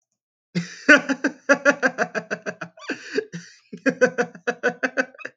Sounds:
Laughter